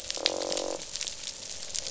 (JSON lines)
{"label": "biophony, croak", "recorder": "SoundTrap 500"}